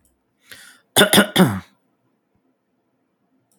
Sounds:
Cough